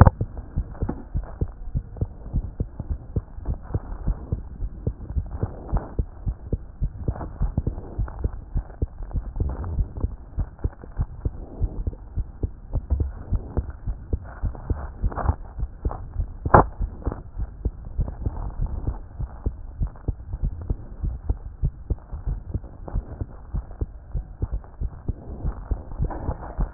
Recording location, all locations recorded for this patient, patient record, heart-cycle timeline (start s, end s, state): aortic valve (AV)
aortic valve (AV)+aortic valve (AV)+aortic valve (AV)+mitral valve (MV)
#Age: Child
#Sex: Male
#Height: 99.0 cm
#Weight: 15.5 kg
#Pregnancy status: False
#Murmur: Absent
#Murmur locations: nan
#Most audible location: nan
#Systolic murmur timing: nan
#Systolic murmur shape: nan
#Systolic murmur grading: nan
#Systolic murmur pitch: nan
#Systolic murmur quality: nan
#Diastolic murmur timing: nan
#Diastolic murmur shape: nan
#Diastolic murmur grading: nan
#Diastolic murmur pitch: nan
#Diastolic murmur quality: nan
#Outcome: Normal
#Campaign: 2014 screening campaign
0.00	1.04	unannotated
1.04	1.14	diastole
1.14	1.26	S1
1.26	1.40	systole
1.40	1.50	S2
1.50	1.74	diastole
1.74	1.84	S1
1.84	2.00	systole
2.00	2.08	S2
2.08	2.34	diastole
2.34	2.46	S1
2.46	2.58	systole
2.58	2.67	S2
2.67	2.90	diastole
2.90	3.00	S1
3.00	3.14	systole
3.14	3.24	S2
3.24	3.46	diastole
3.46	3.58	S1
3.58	3.72	systole
3.72	3.80	S2
3.80	4.06	diastole
4.06	4.16	S1
4.16	4.32	systole
4.32	4.42	S2
4.42	4.60	diastole
4.60	4.72	S1
4.72	4.86	systole
4.86	4.94	S2
4.94	5.14	diastole
5.14	5.26	S1
5.26	5.40	systole
5.40	5.50	S2
5.50	5.72	diastole
5.72	5.82	S1
5.82	5.98	systole
5.98	6.06	S2
6.06	6.26	diastole
6.26	6.36	S1
6.36	6.50	systole
6.50	6.60	S2
6.60	6.80	diastole
6.80	6.92	S1
6.92	7.06	systole
7.06	7.16	S2
7.16	7.40	diastole
7.40	26.74	unannotated